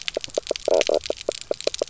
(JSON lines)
{"label": "biophony, knock croak", "recorder": "SoundTrap 300"}